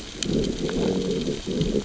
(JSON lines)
{"label": "biophony, growl", "recorder": "SoundTrap 600 or HydroMoth"}